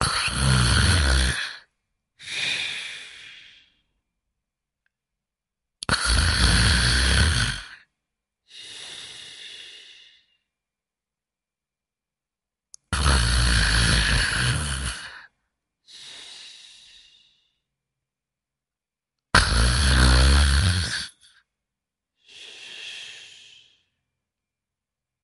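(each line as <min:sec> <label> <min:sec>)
0:00.0 Person snores heavily with short pauses between inhales and exhales. 0:03.7
0:05.8 Person snores heavily with short pauses between inhales and exhales. 0:10.5
0:12.7 Person snores heavily with short pauses between inhales and exhales. 0:17.6
0:19.3 Person snores heavily with short pauses between inhales and exhales. 0:24.3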